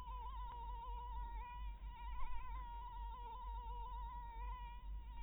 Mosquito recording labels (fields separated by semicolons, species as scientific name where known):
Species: Anopheles maculatus; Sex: female; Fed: blood-fed; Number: one; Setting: cup